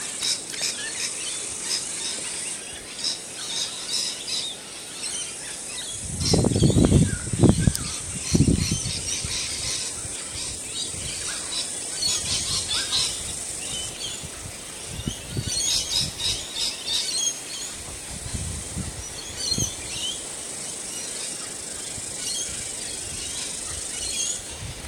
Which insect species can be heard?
Palapsalta circumdata